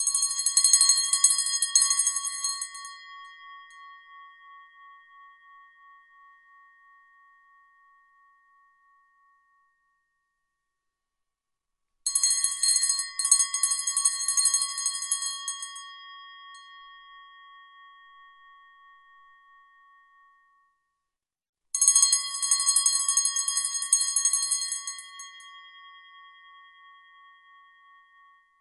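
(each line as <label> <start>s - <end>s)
A bell is ringing repeatedly. 0.0s - 4.2s
A bell chimes repeatedly. 12.0s - 16.8s
A bell tolls repeatedly. 21.7s - 25.9s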